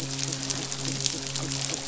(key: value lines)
label: biophony, midshipman
recorder: SoundTrap 500